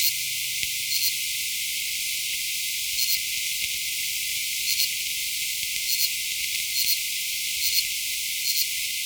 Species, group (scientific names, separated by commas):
Incertana incerta, Orthoptera